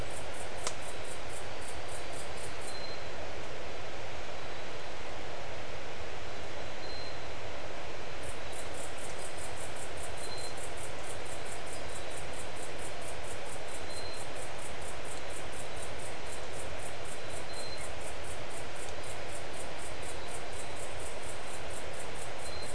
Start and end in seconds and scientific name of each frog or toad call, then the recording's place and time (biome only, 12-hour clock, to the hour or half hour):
none
Atlantic Forest, ~3am